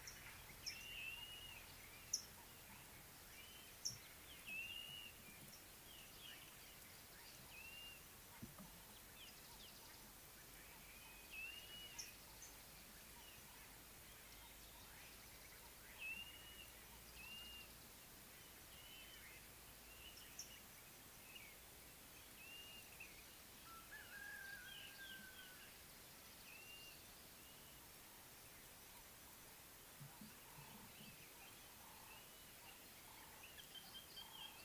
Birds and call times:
Mariqua Sunbird (Cinnyris mariquensis): 0:02.1
Blue-naped Mousebird (Urocolius macrourus): 0:16.2
Ring-necked Dove (Streptopelia capicola): 0:31.8

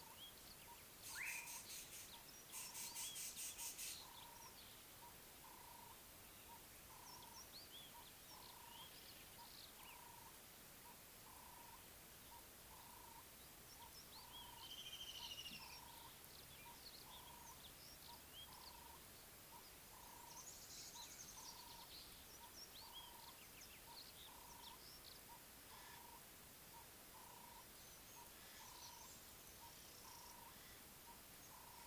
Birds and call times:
Rattling Cisticola (Cisticola chiniana): 0:03.1
Ring-necked Dove (Streptopelia capicola): 0:05.7
Spectacled Weaver (Ploceus ocularis): 0:15.0
Mariqua Sunbird (Cinnyris mariquensis): 0:21.1

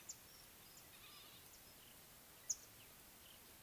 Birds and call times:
Beautiful Sunbird (Cinnyris pulchellus): 0:02.5

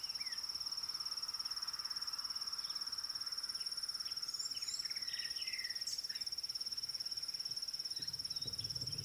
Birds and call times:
Red-cheeked Cordonbleu (Uraeginthus bengalus): 0:04.5
African Bare-eyed Thrush (Turdus tephronotus): 0:06.0

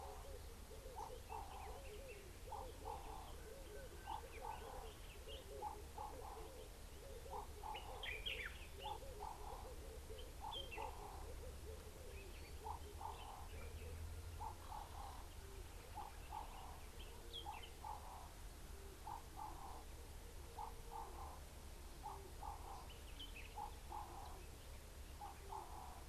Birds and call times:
Ring-necked Dove (Streptopelia capicola): 0:01.4, 0:21.0
Common Bulbul (Pycnonotus barbatus): 0:08.3

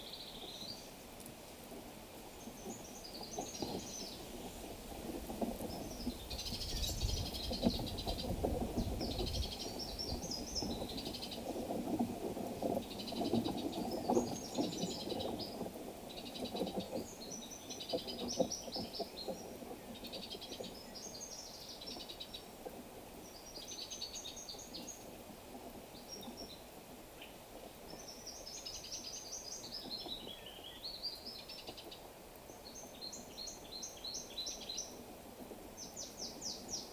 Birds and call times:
Tacazze Sunbird (Nectarinia tacazze): 0:07.3, 0:16.4
Brown Woodland-Warbler (Phylloscopus umbrovirens): 0:10.4, 0:18.8, 0:33.9

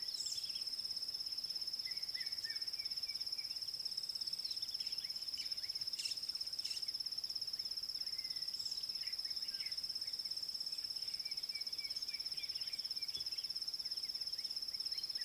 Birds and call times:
Red-chested Cuckoo (Cuculus solitarius): 0:02.2
White-browed Sparrow-Weaver (Plocepasser mahali): 0:06.1

